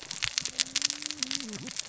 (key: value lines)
label: biophony, cascading saw
recorder: SoundTrap 600 or HydroMoth